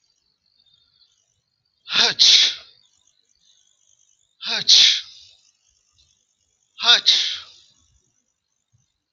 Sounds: Sneeze